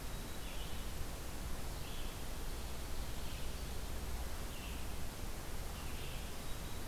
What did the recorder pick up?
Black-throated Green Warbler, Red-eyed Vireo